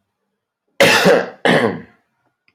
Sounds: Cough